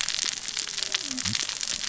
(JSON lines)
{"label": "biophony, cascading saw", "recorder": "SoundTrap 600 or HydroMoth"}